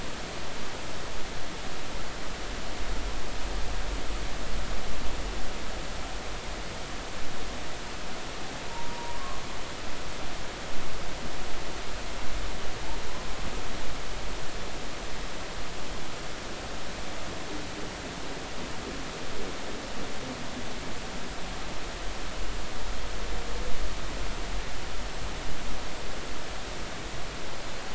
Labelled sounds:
8.6	9.2	humpback whale, 0.90 to 1.0 kHz

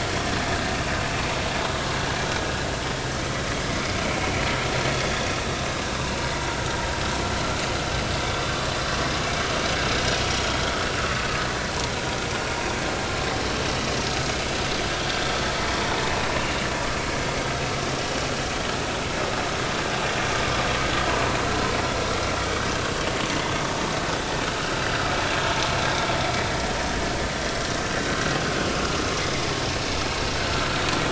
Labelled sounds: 16.4	16.7	vessel noise, 2.7 to 2.9 kHz

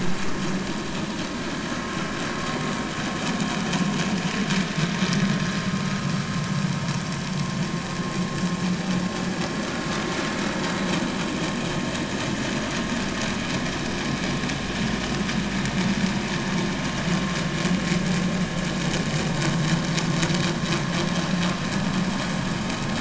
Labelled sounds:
6.1	6.4	vessel noise, 4.6 to 4.8 kHz

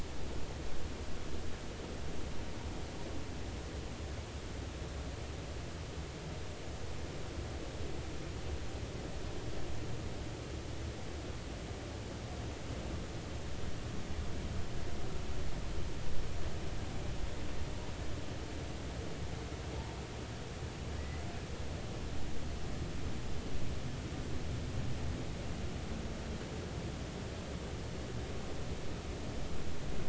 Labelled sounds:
21.0	21.3	humpback whale, 1.8 to 2.1 kHz

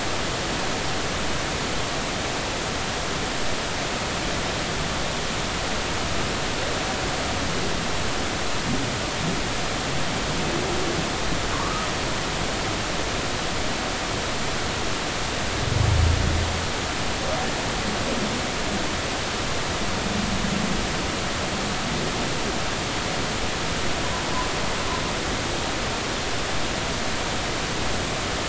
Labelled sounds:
11.5	11.9	humpback whale, 0.90 to 1.3 kHz

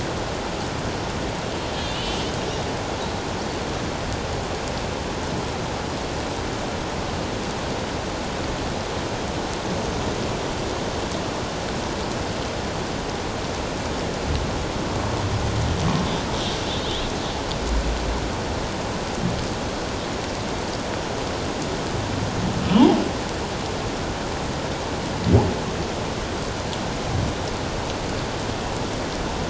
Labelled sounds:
1.9	2.2	humpback whale, 2.7 to 3.2 kHz

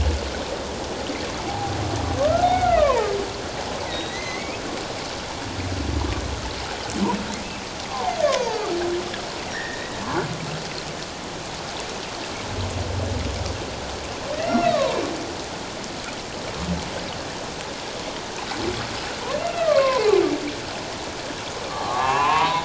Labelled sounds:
1.5	1.7	humpback whale, 0.78 to 0.91 kHz
2.2	3.1	humpback whale, 0.81 to 2.3 kHz
3.9	4.6	humpback whale, 1.9 to 4.2 kHz
7.9	8.6	humpback whale, 0.78 to 1.2 kHz
9.5	10.0	humpback whale, 1.6 to 2.1 kHz
14.3	14.9	humpback whale, 0.88 to 2.1 kHz
19.4	20.1	humpback whale, 0.94 to 2.8 kHz
21.7	22.6	humpback whale, 0.78 to 1.2 kHz

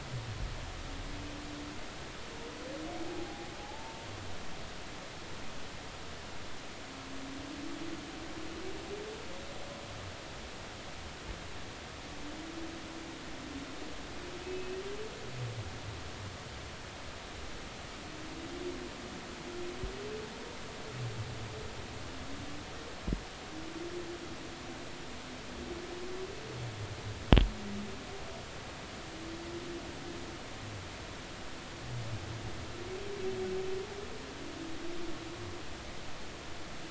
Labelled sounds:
3.1	4.1	humpback whale, 0.80 to 0.96 kHz
14.4	14.7	humpback whale, 2.5 to 2.7 kHz

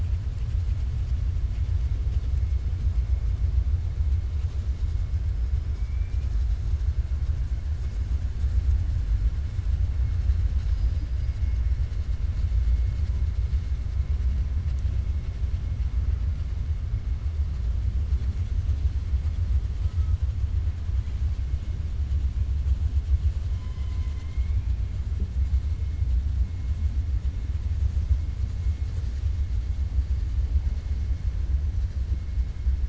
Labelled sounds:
5.7	6.3	killer whale, 2.2 to 3.0 kHz
10.5	11.6	killer whale, 2.4 to 6.3 kHz
23.5	24.6	killer whale, 1.1 to 5.2 kHz

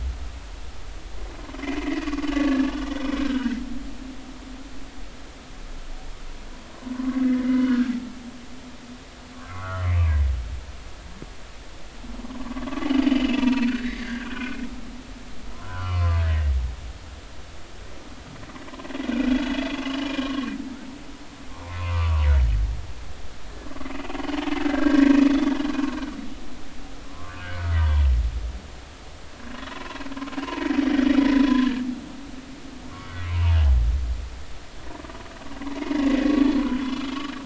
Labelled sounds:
1.8	3.6	humpback whale, 1.1 to 3.7 kHz
7.4	7.9	humpback whale, 1.2 to 2.2 kHz
9.3	10.2	humpback whale, 0.99 to 2.7 kHz
12.8	14.6	humpback whale, 0.90 to 4.5 kHz
15.5	16.5	humpback whale, 0.96 to 3.0 kHz
19.0	20.5	humpback whale, 0.99 to 3.1 kHz
21.6	22.3	humpback whale, 0.80 to 2.7 kHz
24.1	25.1	humpback whale, 1.3 to 3.2 kHz
27.1	27.8	humpback whale, 0.99 to 1.7 kHz
29.7	30.0	humpback whale, 0.93 to 1.1 kHz
30.4	31.8	humpback whale, 0.90 to 1.8 kHz
33.3	33.6	humpback whale, 0.83 to 1.2 kHz
36.3	36.5	humpback whale, 1.1 to 1.2 kHz

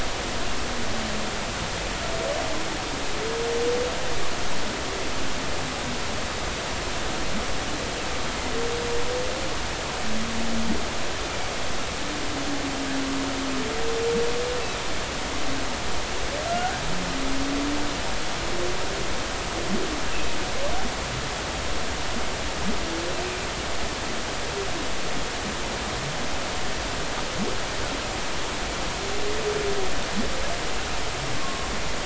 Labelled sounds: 16.5	16.8	humpback whale, 1.3 to 1.6 kHz
20.1	20.4	humpback whale, 2.5 to 2.8 kHz
31.4	31.7	humpback whale, 0.96 to 1.2 kHz

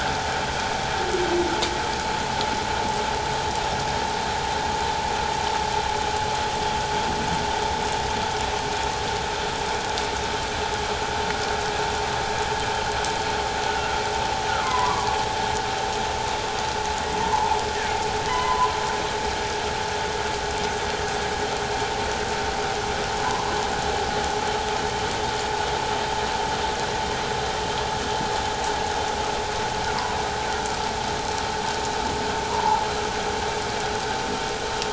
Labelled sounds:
14.5	15.1	humpback whale, 0.94 to 2.2 kHz
17.2	18.7	humpback whale, 0.78 to 3.1 kHz
30.5	30.8	humpback whale, 1.2 to 1.5 kHz
32.5	32.8	humpback whale, 0.81 to 1.1 kHz

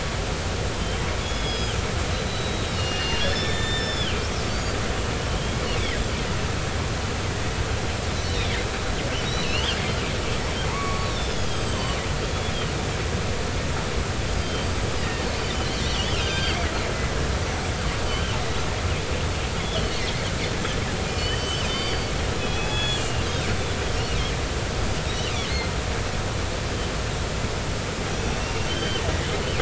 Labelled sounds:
0.3	1.8	killer whale, northern resident, 0.93 to 5.2 kHz
2.3	4.2	killer whale, northern resident, 1.6 to 7.2 kHz
4.5	4.8	killer whale, northern resident, 4.5 to 4.9 kHz
8.4	8.6	killer whale, northern resident, 1.7 to 2.6 kHz
9.2	9.8	killer whale, northern resident, 2.5 to 4.4 kHz
10.6	12.0	killer whale, northern resident, 0.86 to 7.9 kHz
14.4	14.7	killer whale, northern resident, 3.1 to 3.2 kHz
15.0	16.6	killer whale, northern resident, 1.5 to 4.9 kHz
17.5	17.8	killer whale, northern resident, 7.6 to 7.9 kHz
18.0	18.3	killer whale, northern resident, 2.8 to 3.2 kHz
19.6	20.0	killer whale, northern resident, 2.8 to 3.6 kHz
21.2	23.3	killer whale, northern resident, 2.4 to 6.8 kHz
24.4	24.7	killer whale, northern resident, 7.97 to 8.00 kHz
25.1	25.3	killer whale, northern resident, 3.6 to 4.0 kHz
28.4	29.0	killer whale, northern resident, 1.5 to 3.3 kHz

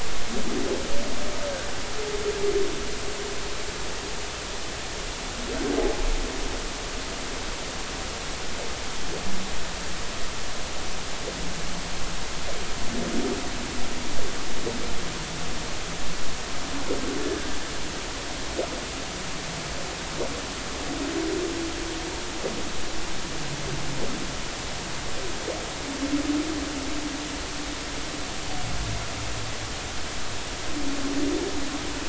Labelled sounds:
17.2	17.5	humpback whale, 1.5 to 1.8 kHz

